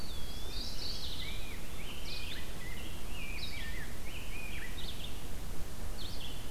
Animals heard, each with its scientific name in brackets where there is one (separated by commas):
Red-eyed Vireo (Vireo olivaceus), Rose-breasted Grosbeak (Pheucticus ludovicianus), Mourning Warbler (Geothlypis philadelphia), Eastern Wood-Pewee (Contopus virens)